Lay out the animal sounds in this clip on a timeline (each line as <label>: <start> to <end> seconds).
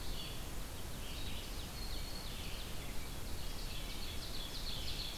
Red-eyed Vireo (Vireo olivaceus): 0.0 to 5.2 seconds
Ovenbird (Seiurus aurocapilla): 0.5 to 2.6 seconds
Black-throated Green Warbler (Setophaga virens): 1.1 to 2.6 seconds
Ovenbird (Seiurus aurocapilla): 3.4 to 5.2 seconds